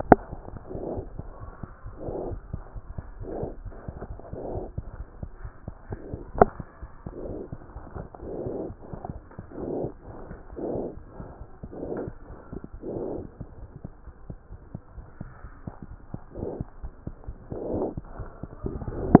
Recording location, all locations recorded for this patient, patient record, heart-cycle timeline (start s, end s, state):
aortic valve (AV)
aortic valve (AV)+mitral valve (MV)
#Age: Infant
#Sex: Male
#Height: 67.0 cm
#Weight: 8.6 kg
#Pregnancy status: False
#Murmur: Absent
#Murmur locations: nan
#Most audible location: nan
#Systolic murmur timing: nan
#Systolic murmur shape: nan
#Systolic murmur grading: nan
#Systolic murmur pitch: nan
#Systolic murmur quality: nan
#Diastolic murmur timing: nan
#Diastolic murmur shape: nan
#Diastolic murmur grading: nan
#Diastolic murmur pitch: nan
#Diastolic murmur quality: nan
#Outcome: Abnormal
#Campaign: 2014 screening campaign
0.00	4.55	unannotated
4.55	4.63	S1
4.63	4.76	systole
4.76	4.84	S2
4.84	5.00	diastole
5.00	5.08	S1
5.08	5.20	systole
5.20	5.28	S2
5.28	5.43	diastole
5.43	5.52	S1
5.52	5.66	systole
5.66	5.74	S2
5.74	5.91	diastole
5.91	6.00	S1
6.00	6.10	systole
6.10	6.18	S2
6.18	6.36	diastole
6.36	6.45	S1
6.45	6.59	systole
6.59	6.66	S2
6.66	6.81	diastole
6.81	6.90	S1
6.90	7.06	systole
7.06	7.13	S2
7.13	7.29	diastole
7.29	19.20	unannotated